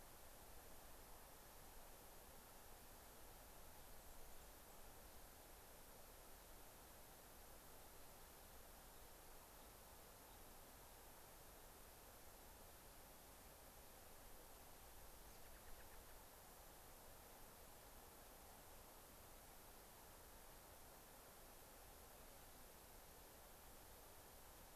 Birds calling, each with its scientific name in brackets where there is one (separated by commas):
American Robin (Turdus migratorius)